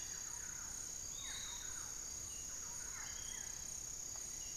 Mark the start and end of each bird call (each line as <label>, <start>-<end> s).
Buff-throated Woodcreeper (Xiphorhynchus guttatus), 0.0-1.0 s
Thrush-like Wren (Campylorhynchus turdinus), 0.0-3.6 s
Barred Forest-Falcon (Micrastur ruficollis), 0.0-4.6 s
Piratic Flycatcher (Legatus leucophaius), 0.0-4.6 s